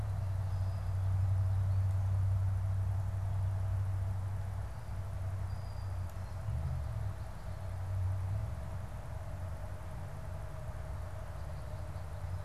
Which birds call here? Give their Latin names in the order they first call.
Molothrus ater